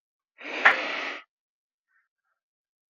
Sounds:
Sniff